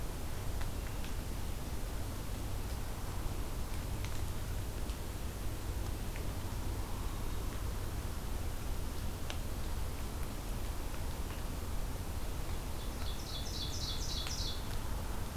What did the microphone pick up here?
Ovenbird